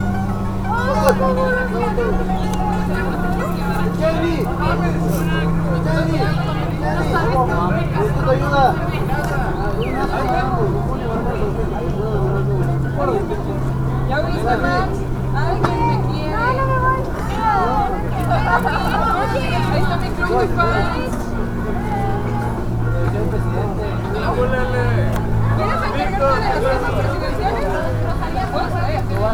Are there only two people communicating?
no